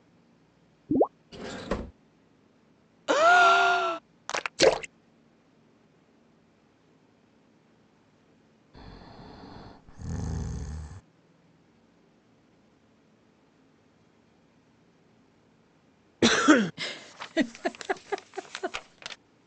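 At 0.88 seconds, you can hear gurgling. Then, at 1.31 seconds, a wooden drawer closes. At 3.06 seconds, someone gasps loudly. At 4.26 seconds, clapping is audible. After that, at 4.57 seconds, a splash can be heard. At 8.73 seconds, breathing is heard. Later, at 16.21 seconds, someone coughs. At 16.76 seconds, someone giggles.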